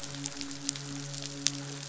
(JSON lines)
{"label": "biophony, midshipman", "recorder": "SoundTrap 500"}